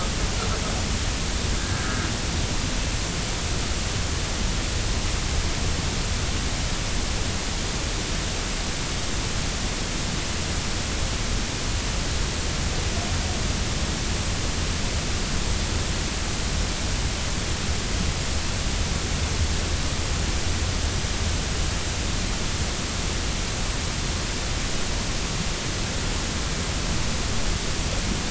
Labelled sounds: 1.6	1.9	humpback whale, 1.5 to 1.7 kHz

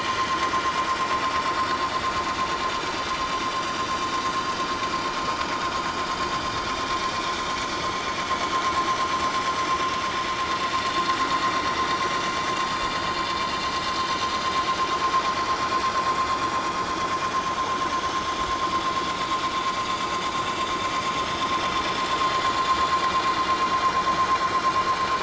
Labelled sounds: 11.9	12.3	vessel noise, 5.7 to 5.9 kHz
14.1	14.3	vessel noise, 5.8 to 6.1 kHz
22.3	22.5	vessel noise, 6.6 to 6.9 kHz

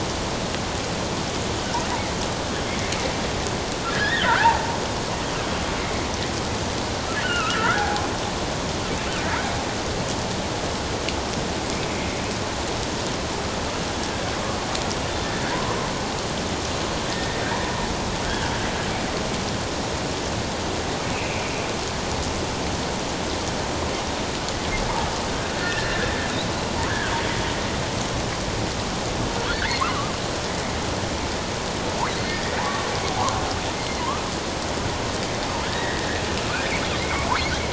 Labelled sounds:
3.9	4.8	killer whale, offshore, 0.78 to 3.8 kHz
7.2	8.0	killer whale, offshore, 0.78 to 3.1 kHz
15.5	15.9	killer whale, offshore, 0.91 to 1.3 kHz
17.1	17.4	killer whale, offshore, 1.8 to 2.0 kHz
21.1	21.5	killer whale, offshore, 2.2 to 2.8 kHz
25.6	26.1	killer whale, offshore, 1.5 to 1.9 kHz
29.5	30.1	killer whale, offshore, 1.0 to 2.2 kHz
32.2	33.3	killer whale, offshore, 0.78 to 2.0 kHz
34.0	34.3	killer whale, offshore, 0.91 to 1.3 kHz
35.6	36.1	killer whale, offshore, 1.3 to 2.0 kHz
36.9	37.3	killer whale, offshore, 2.0 to 2.4 kHz

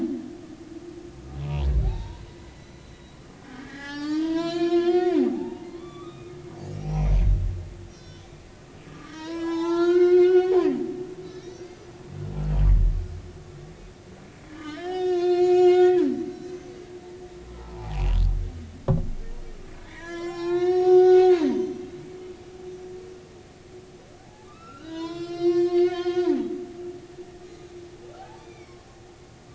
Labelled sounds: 1.8	7.3	humpback whale, 0.80 to 6.5 kHz
7.9	8.3	humpback whale, 1.5 to 6.2 kHz
8.9	10.6	humpback whale, 0.80 to 7.5 kHz
11.4	12.0	humpback whale, 4.2 to 6.2 kHz
14.5	16.7	humpback whale, 1.1 to 7.3 kHz
17.5	18.2	humpback whale, 0.80 to 3.0 kHz
19.9	22.2	humpback whale, 0.80 to 7.0 kHz
24.2	26.5	humpback whale, 0.80 to 6.3 kHz
27.4	28.8	humpback whale, 0.80 to 4.2 kHz

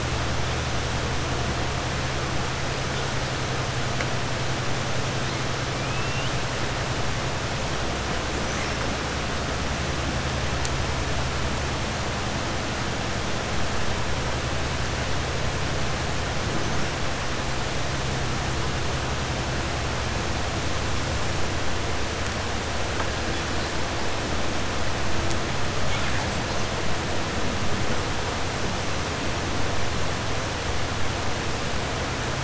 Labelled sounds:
5.8	6.3	killer whale, 2.4 to 3.7 kHz
25.8	26.2	killer whale, 0.89 to 3.9 kHz

